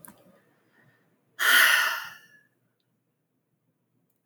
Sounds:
Sigh